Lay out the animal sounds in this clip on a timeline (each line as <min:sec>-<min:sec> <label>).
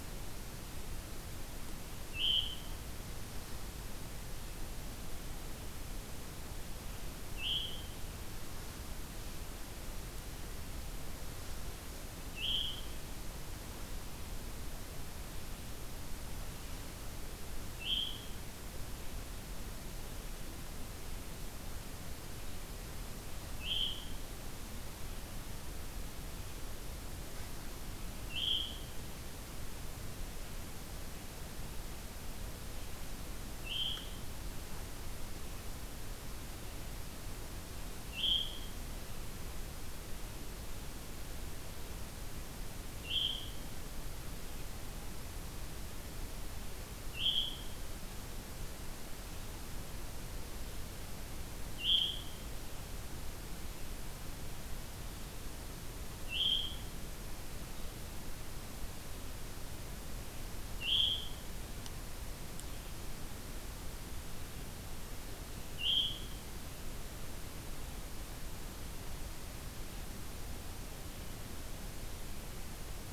0:02.0-0:02.9 Veery (Catharus fuscescens)
0:07.1-0:08.1 Veery (Catharus fuscescens)
0:12.2-0:13.0 Veery (Catharus fuscescens)
0:17.5-0:18.5 Veery (Catharus fuscescens)
0:23.4-0:24.2 Veery (Catharus fuscescens)
0:28.2-0:29.0 Veery (Catharus fuscescens)
0:33.5-0:34.4 Veery (Catharus fuscescens)
0:37.9-0:38.9 Veery (Catharus fuscescens)
0:42.8-0:43.7 Veery (Catharus fuscescens)
0:46.9-0:47.8 Veery (Catharus fuscescens)
0:51.6-0:52.3 Veery (Catharus fuscescens)
0:56.1-0:56.9 Veery (Catharus fuscescens)
1:00.4-1:01.8 Veery (Catharus fuscescens)
1:05.4-1:06.7 Veery (Catharus fuscescens)